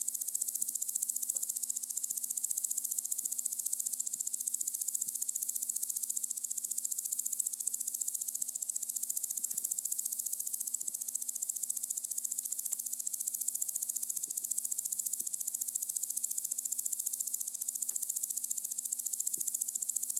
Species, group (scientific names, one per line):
Omocestus viridulus
Orthoptera